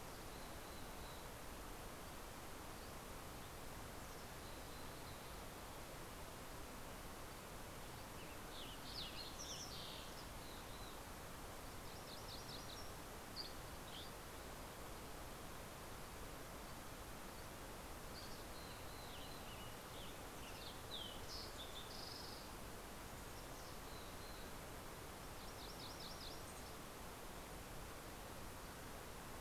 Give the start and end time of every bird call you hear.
0.1s-1.7s: Mountain Chickadee (Poecile gambeli)
3.9s-5.7s: Mountain Chickadee (Poecile gambeli)
8.1s-10.2s: Fox Sparrow (Passerella iliaca)
10.3s-11.0s: Mountain Chickadee (Poecile gambeli)
11.4s-13.2s: MacGillivray's Warbler (Geothlypis tolmiei)
13.1s-14.3s: Dusky Flycatcher (Empidonax oberholseri)
17.7s-19.4s: Mountain Chickadee (Poecile gambeli)
18.0s-21.0s: Western Tanager (Piranga ludoviciana)
20.8s-22.7s: Fox Sparrow (Passerella iliaca)
23.2s-24.7s: Mountain Chickadee (Poecile gambeli)
24.9s-26.8s: MacGillivray's Warbler (Geothlypis tolmiei)

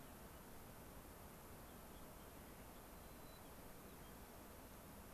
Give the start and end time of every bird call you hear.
0.0s-0.5s: unidentified bird
1.6s-2.9s: unidentified bird
3.0s-4.2s: White-crowned Sparrow (Zonotrichia leucophrys)

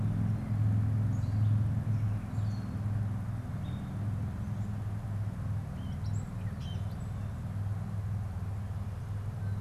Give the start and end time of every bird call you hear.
0.0s-2.8s: Gray Catbird (Dumetella carolinensis)
5.5s-7.4s: Gray Catbird (Dumetella carolinensis)

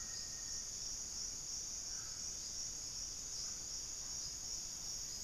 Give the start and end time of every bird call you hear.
0.0s-0.8s: Black-faced Antthrush (Formicarius analis)
0.0s-3.9s: unidentified bird

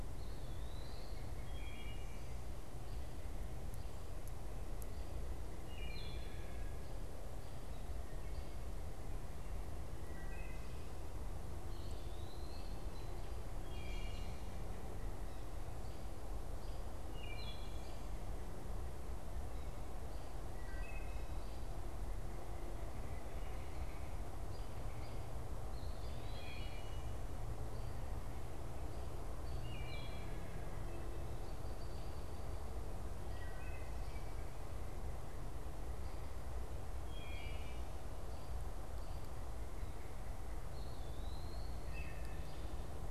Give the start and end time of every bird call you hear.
0.0s-42.7s: Wood Thrush (Hylocichla mustelina)
0.1s-1.3s: Eastern Wood-Pewee (Contopus virens)
11.5s-12.9s: Eastern Wood-Pewee (Contopus virens)
22.0s-25.3s: Red-bellied Woodpecker (Melanerpes carolinus)
40.4s-42.0s: Eastern Wood-Pewee (Contopus virens)

